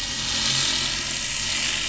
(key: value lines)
label: anthrophony, boat engine
recorder: SoundTrap 500